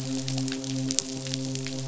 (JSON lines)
{"label": "biophony, midshipman", "recorder": "SoundTrap 500"}